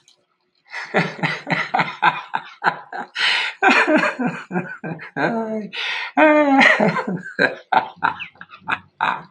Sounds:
Laughter